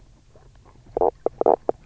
{"label": "biophony, knock croak", "recorder": "SoundTrap 300"}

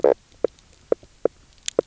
{"label": "biophony, knock croak", "recorder": "SoundTrap 300"}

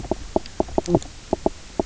{"label": "biophony, knock croak", "recorder": "SoundTrap 300"}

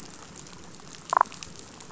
{"label": "biophony, damselfish", "recorder": "SoundTrap 500"}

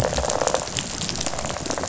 {"label": "biophony, rattle response", "recorder": "SoundTrap 500"}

